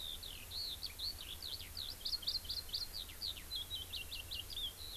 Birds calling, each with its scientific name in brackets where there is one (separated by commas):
Eurasian Skylark (Alauda arvensis)